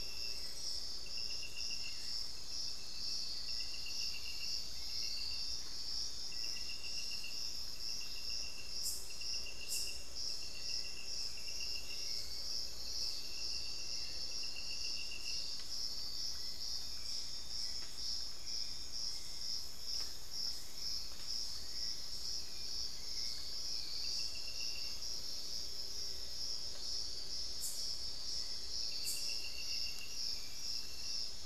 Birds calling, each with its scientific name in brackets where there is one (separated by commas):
Little Tinamou (Crypturellus soui), Thrush-like Wren (Campylorhynchus turdinus), Hauxwell's Thrush (Turdus hauxwelli)